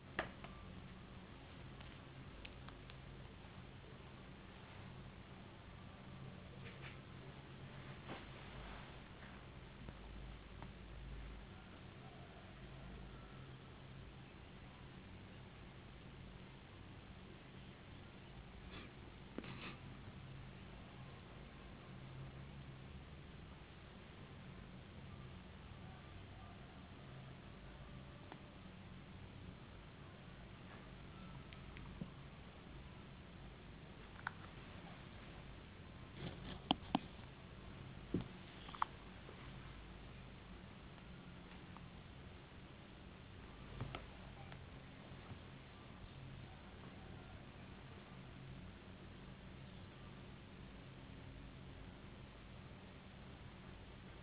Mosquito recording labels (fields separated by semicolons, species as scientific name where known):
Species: no mosquito; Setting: insect culture